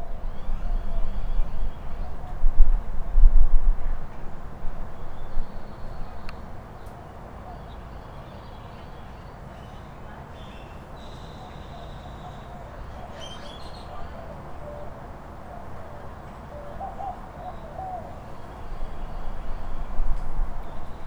Is there a machine?
no